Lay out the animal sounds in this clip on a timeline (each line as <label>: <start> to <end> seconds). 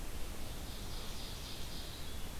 Ovenbird (Seiurus aurocapilla): 0.4 to 2.4 seconds